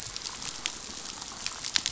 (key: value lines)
label: biophony, chatter
recorder: SoundTrap 500